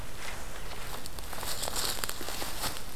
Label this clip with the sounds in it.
forest ambience